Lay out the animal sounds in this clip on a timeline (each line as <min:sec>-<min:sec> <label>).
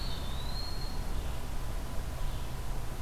0:00.0-0:01.3 Eastern Wood-Pewee (Contopus virens)
0:01.9-0:03.0 Red-eyed Vireo (Vireo olivaceus)